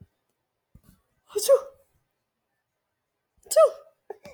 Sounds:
Sneeze